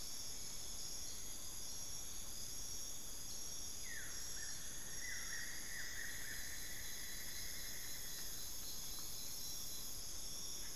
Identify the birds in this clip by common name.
Collared Forest-Falcon, Buff-throated Woodcreeper, Cinnamon-throated Woodcreeper